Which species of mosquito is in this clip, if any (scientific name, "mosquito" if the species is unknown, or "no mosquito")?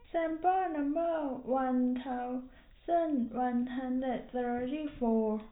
no mosquito